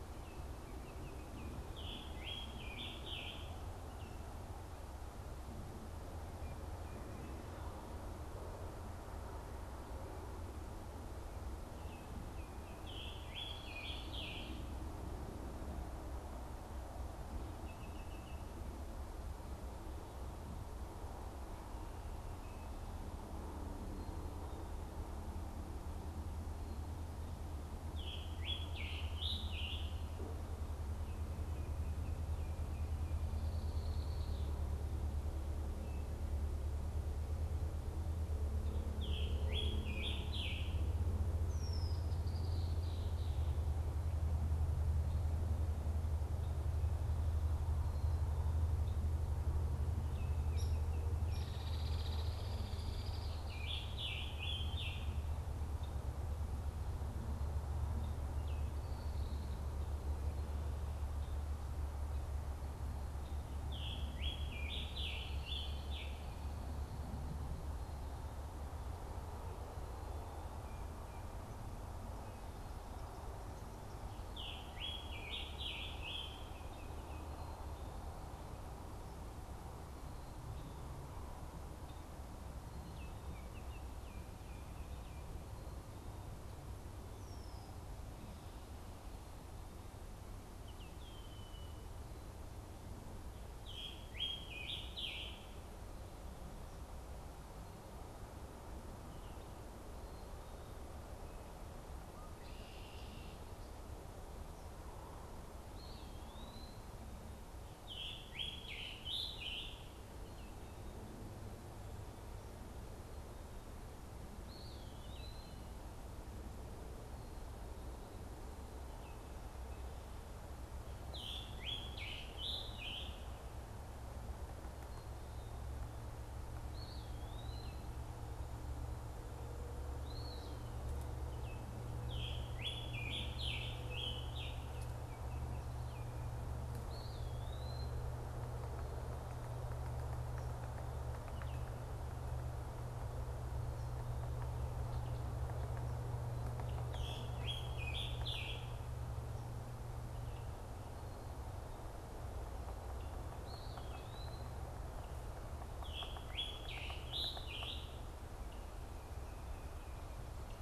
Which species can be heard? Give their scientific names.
Icterus galbula, Piranga olivacea, Agelaius phoeniceus, Dryobates villosus, Contopus virens